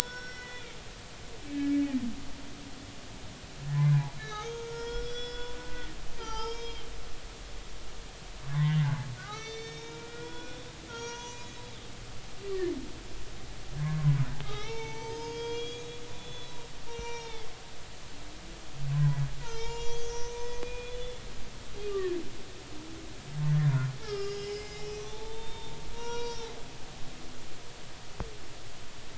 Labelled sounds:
0.0	0.8	humpback whale, 1.4 to 5.6 kHz
1.5	1.8	humpback whale, 1.6 to 2.6 kHz
3.7	5.9	humpback whale, 0.80 to 6.6 kHz
6.2	6.9	humpback whale, 0.83 to 6.1 kHz
8.5	11.5	humpback whale, 0.90 to 6.9 kHz
13.8	17.5	humpback whale, 0.80 to 6.7 kHz
18.9	21.2	humpback whale, 0.86 to 7.1 kHz
21.9	22.1	humpback whale, 1.1 to 1.2 kHz
24.0	26.7	humpback whale, 0.83 to 6.2 kHz

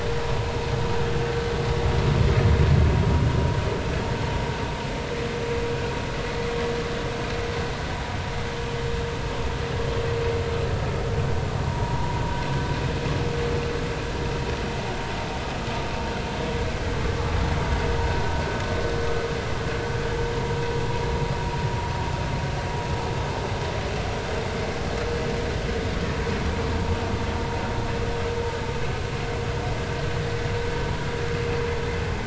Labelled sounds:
11.7	12.2	vessel noise, 0.90 to 1.0 kHz

